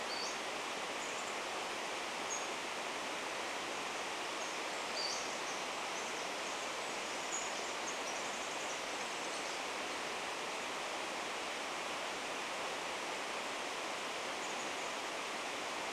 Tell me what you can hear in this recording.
unidentified bird chip note, Pacific-slope Flycatcher call, Pacific Wren song, Chestnut-backed Chickadee call